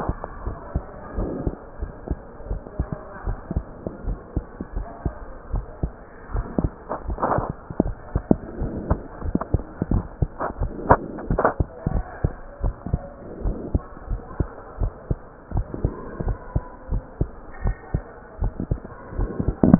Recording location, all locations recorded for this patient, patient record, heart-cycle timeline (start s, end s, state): mitral valve (MV)
aortic valve (AV)+pulmonary valve (PV)+tricuspid valve (TV)+mitral valve (MV)
#Age: Child
#Sex: Male
#Height: 114.0 cm
#Weight: 19.6 kg
#Pregnancy status: False
#Murmur: Absent
#Murmur locations: nan
#Most audible location: nan
#Systolic murmur timing: nan
#Systolic murmur shape: nan
#Systolic murmur grading: nan
#Systolic murmur pitch: nan
#Systolic murmur quality: nan
#Diastolic murmur timing: nan
#Diastolic murmur shape: nan
#Diastolic murmur grading: nan
#Diastolic murmur pitch: nan
#Diastolic murmur quality: nan
#Outcome: Normal
#Campaign: 2015 screening campaign
0.00	0.16	unannotated
0.16	0.44	diastole
0.44	0.58	S1
0.58	0.72	systole
0.72	0.86	S2
0.86	1.16	diastole
1.16	1.32	S1
1.32	1.44	systole
1.44	1.54	S2
1.54	1.82	diastole
1.82	1.94	S1
1.94	2.08	systole
2.08	2.18	S2
2.18	2.48	diastole
2.48	2.62	S1
2.62	2.76	systole
2.76	2.88	S2
2.88	3.24	diastole
3.24	3.38	S1
3.38	3.50	systole
3.50	3.64	S2
3.64	4.04	diastole
4.04	4.18	S1
4.18	4.34	systole
4.34	4.44	S2
4.44	4.74	diastole
4.74	4.88	S1
4.88	5.02	systole
5.02	5.14	S2
5.14	5.50	diastole
5.50	5.66	S1
5.66	5.80	systole
5.80	5.92	S2
5.92	6.32	diastole
6.32	6.46	S1
6.46	6.58	systole
6.58	6.72	S2
6.72	7.06	diastole
7.06	7.20	S1
7.20	7.36	systole
7.36	7.46	S2
7.46	7.80	diastole
7.80	7.96	S1
7.96	8.12	systole
8.12	8.24	S2
8.24	8.58	diastole
8.58	8.74	S1
8.74	8.88	systole
8.88	8.98	S2
8.98	9.24	diastole
9.24	9.36	S1
9.36	9.48	systole
9.48	9.62	S2
9.62	9.90	diastole
9.90	10.04	S1
10.04	10.18	systole
10.18	10.30	S2
10.30	10.58	diastole
10.58	10.72	S1
10.72	10.84	systole
10.84	10.98	S2
10.98	11.28	diastole
11.28	11.44	S1
11.44	11.54	systole
11.54	11.66	S2
11.66	11.92	diastole
11.92	12.06	S1
12.06	12.20	systole
12.20	12.36	S2
12.36	12.62	diastole
12.62	12.76	S1
12.76	12.92	systole
12.92	13.06	S2
13.06	13.44	diastole
13.44	13.58	S1
13.58	13.72	systole
13.72	13.84	S2
13.84	14.10	diastole
14.10	14.22	S1
14.22	14.38	systole
14.38	14.48	S2
14.48	14.80	diastole
14.80	14.92	S1
14.92	15.06	systole
15.06	15.20	S2
15.20	15.54	diastole
15.54	15.68	S1
15.68	15.82	systole
15.82	15.92	S2
15.92	16.20	diastole
16.20	16.38	S1
16.38	16.54	systole
16.54	16.64	S2
16.64	16.90	diastole
16.90	17.02	S1
17.02	17.16	systole
17.16	17.30	S2
17.30	17.64	diastole
17.64	17.76	S1
17.76	17.90	systole
17.90	18.04	S2
18.04	18.40	diastole
18.40	18.54	S1
18.54	18.70	systole
18.70	18.80	S2
18.80	19.14	diastole
19.14	19.79	unannotated